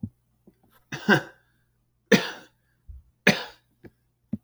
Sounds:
Cough